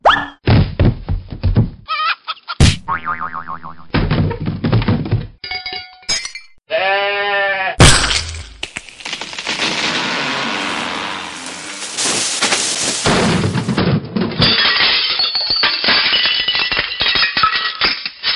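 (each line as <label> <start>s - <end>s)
A ball bounces down the stairs with rhythmic thudding sounds while chickens run away. 0.0s - 2.6s
The ball bounces strongly before suddenly stopping, followed by sudden chicken sounds. 0.0s - 2.6s
The ball impacts with a light, bouncy, and repetitive sound while chickens flap their wings. 0.0s - 2.6s
The sound of spring. 2.6s - 3.9s
The spring noise repeats quickly. 2.6s - 3.9s
A cartoonish noise. 2.6s - 7.8s
A falling noise happens in quick succession, followed by a sudden bell ringing, a sharp breaking sound, and overlapping goat bleats. 3.9s - 7.8s
A falling object creates rhythmic thuds and clattering sounds, a bell rings sharply, an object breaks with a loud crash, and goats bleat in a startled manner. 3.9s - 7.8s
An object tumbles down the stairs in a bouncy manner, hitting each step noisily, then a bell rings loudly, something shatters, and goats bleat. 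3.9s - 7.8s
A breaking sound occurs first, loud and distinct, followed immediately by the fall and impact of a tree, with the breaking object producing a sharp crash. 7.8s - 13.7s
A tree trunk cracks sharply and then falls heavily onto an object, causing it to break. 7.8s - 13.7s
The breaking of a tree trunk produces a loud, sharp cracking noise followed by a heavy, deep fall. 7.8s - 13.7s
A loud impact occurs. 13.7s - 18.4s
A stack of dishes falls, crashes onto the floor, and shatters. 13.7s - 18.4s
The sound is sharp. 13.7s - 18.4s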